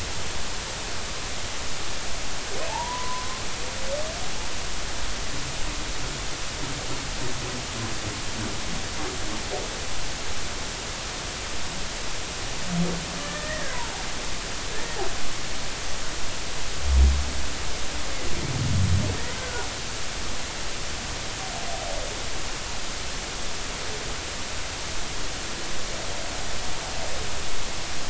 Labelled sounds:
2.7	3.3	humpback whale, 0.80 to 1.1 kHz
13.2	13.7	humpback whale, 1.7 to 2.0 kHz
19.3	19.7	humpback whale, 1.4 to 1.6 kHz

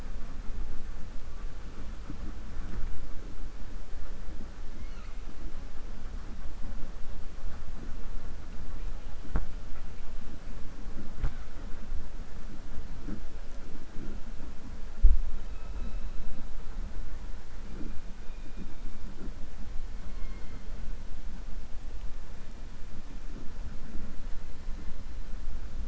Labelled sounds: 15.3	16.1	killer whale, 2.5 to 4.0 kHz

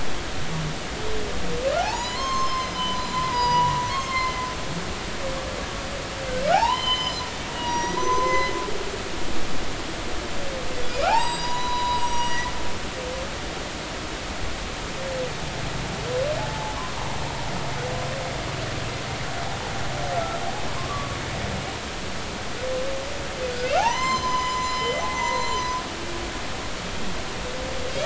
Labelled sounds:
1.8	4.5	humpback whale, 0.80 to 7.5 kHz
6.5	7.2	humpback whale, 0.80 to 6.2 kHz
7.6	8.5	humpback whale, 0.90 to 6.1 kHz
10.8	13.1	humpback whale, 0.80 to 7.8 kHz
16.4	16.8	humpback whale, 0.80 to 0.93 kHz
20.7	21.2	humpback whale, 0.93 to 1.3 kHz
23.8	25.6	humpback whale, 0.80 to 7.4 kHz

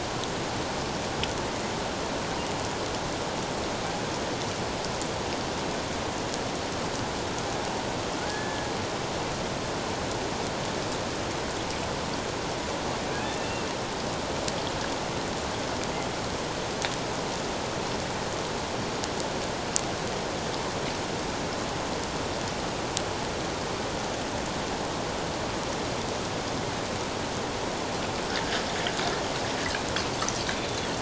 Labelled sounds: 8.3	8.7	killer whale, Bigg's (transient), 1.6 to 1.8 kHz
13.1	13.7	killer whale, Bigg's (transient), 1.6 to 2.8 kHz
30.6	30.9	killer whale, Bigg's (transient), 3.2 to 3.6 kHz

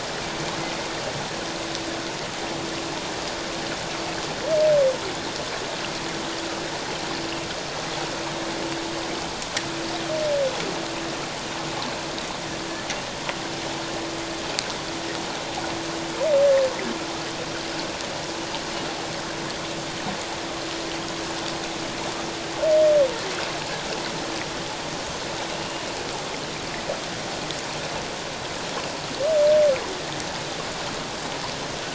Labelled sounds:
25.5	25.9	humpback whale, 2.7 to 2.9 kHz

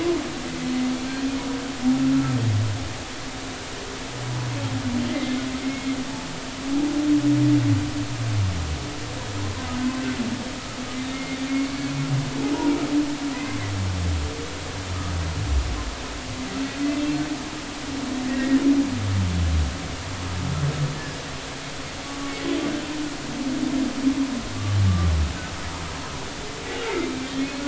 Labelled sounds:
5.1	5.9	humpback whale, 1.9 to 2.2 kHz
11.1	11.9	humpback whale, 2.1 to 2.3 kHz
12.5	13.6	humpback whale, 0.86 to 2.2 kHz
18.3	18.6	humpback whale, 1.7 to 2.0 kHz
26.9	27.1	humpback whale, 2.0 to 2.3 kHz

